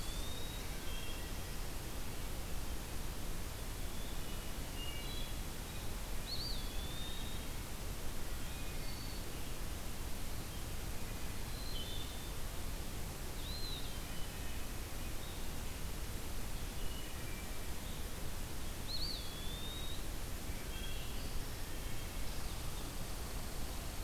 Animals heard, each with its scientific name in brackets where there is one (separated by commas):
Eastern Wood-Pewee (Contopus virens), Wood Thrush (Hylocichla mustelina), Red Squirrel (Tamiasciurus hudsonicus)